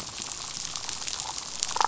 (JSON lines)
{"label": "biophony, damselfish", "recorder": "SoundTrap 500"}